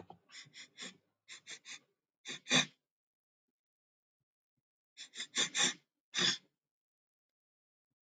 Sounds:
Sniff